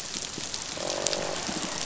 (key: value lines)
label: biophony
recorder: SoundTrap 500

label: biophony, croak
recorder: SoundTrap 500